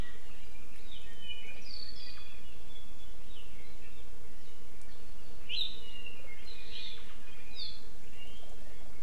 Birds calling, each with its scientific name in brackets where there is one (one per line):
Apapane (Himatione sanguinea)